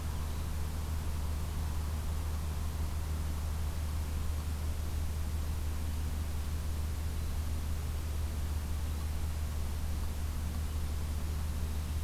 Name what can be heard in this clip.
forest ambience